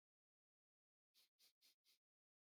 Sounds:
Sniff